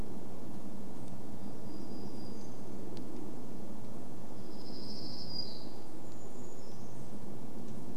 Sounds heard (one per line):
Brown Creeper song
warbler song